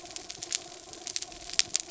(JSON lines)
{"label": "anthrophony, mechanical", "recorder": "SoundTrap 300"}